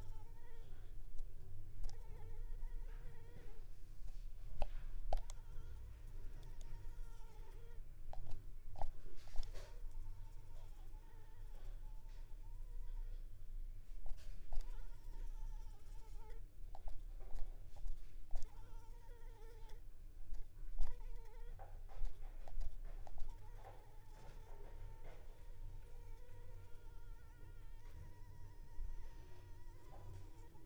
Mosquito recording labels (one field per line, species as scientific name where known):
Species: Anopheles arabiensis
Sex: female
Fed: unfed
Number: one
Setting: cup